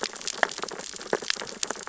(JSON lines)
{"label": "biophony, sea urchins (Echinidae)", "recorder": "SoundTrap 600 or HydroMoth"}